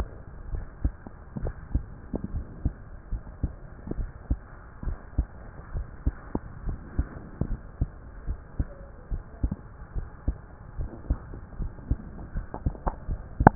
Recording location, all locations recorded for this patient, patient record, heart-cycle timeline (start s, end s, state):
pulmonary valve (PV)
pulmonary valve (PV)+tricuspid valve (TV)+mitral valve (MV)
#Age: Adolescent
#Sex: Male
#Height: 162.0 cm
#Weight: 58.8 kg
#Pregnancy status: False
#Murmur: Absent
#Murmur locations: nan
#Most audible location: nan
#Systolic murmur timing: nan
#Systolic murmur shape: nan
#Systolic murmur grading: nan
#Systolic murmur pitch: nan
#Systolic murmur quality: nan
#Diastolic murmur timing: nan
#Diastolic murmur shape: nan
#Diastolic murmur grading: nan
#Diastolic murmur pitch: nan
#Diastolic murmur quality: nan
#Outcome: Normal
#Campaign: 2015 screening campaign
0.00	0.50	unannotated
0.50	0.64	S1
0.64	0.80	systole
0.80	0.94	S2
0.94	1.42	diastole
1.42	1.56	S1
1.56	1.74	systole
1.74	1.86	S2
1.86	2.32	diastole
2.32	2.46	S1
2.46	2.60	systole
2.60	2.74	S2
2.74	3.10	diastole
3.10	3.22	S1
3.22	3.42	systole
3.42	3.54	S2
3.54	3.98	diastole
3.98	4.10	S1
4.10	4.26	systole
4.26	4.40	S2
4.40	4.82	diastole
4.82	4.96	S1
4.96	5.14	systole
5.14	5.28	S2
5.28	5.72	diastole
5.72	5.86	S1
5.86	6.02	systole
6.02	6.16	S2
6.16	6.64	diastole
6.64	6.80	S1
6.80	6.94	systole
6.94	7.08	S2
7.08	7.46	diastole
7.46	7.60	S1
7.60	7.78	systole
7.78	7.90	S2
7.90	8.26	diastole
8.26	8.38	S1
8.38	8.56	systole
8.56	8.70	S2
8.70	9.10	diastole
9.10	9.22	S1
9.22	9.40	systole
9.40	9.52	S2
9.52	9.92	diastole
9.92	10.08	S1
10.08	10.24	systole
10.24	10.38	S2
10.38	10.78	diastole
10.78	10.90	S1
10.90	11.06	systole
11.06	11.18	S2
11.18	11.58	diastole
11.58	11.72	S1
11.72	11.88	systole
11.88	12.00	S2
12.00	12.30	diastole
12.30	12.46	S1
12.46	13.55	unannotated